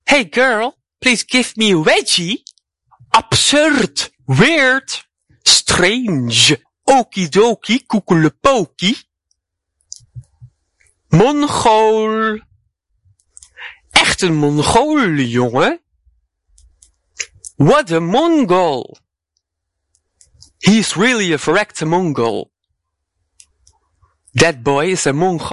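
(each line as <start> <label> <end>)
0.0 A man speaks humorously. 2.4
2.4 A fast movement of the mouth with saliva. 3.1
3.1 A man speaks a couple of phrases repeatedly in a funny manner. 9.0
9.9 A fast movement of the mouth with saliva. 10.9
11.0 A man speaks quickly in a humorous manner. 12.5
12.9 A fast movement of the mouth with saliva. 13.8
13.9 A man speaks a few humorous phrases quickly. 15.8
16.5 A fast movement of the mouth with saliva. 17.4
17.2 A man speaks a couple of phrases quickly in a funny manner. 19.0
19.9 A fast movement of the mouth with saliva. 20.5
20.6 A man speaks a couple of phrases quickly in a funny manner. 22.5
23.3 A fast movement of the mouth with saliva. 24.2
24.3 A man speaks a couple of phrases quickly and humorously. 25.5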